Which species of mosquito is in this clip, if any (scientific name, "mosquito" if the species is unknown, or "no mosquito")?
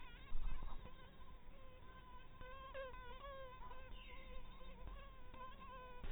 mosquito